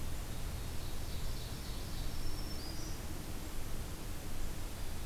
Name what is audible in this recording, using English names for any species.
Ovenbird, Black-throated Green Warbler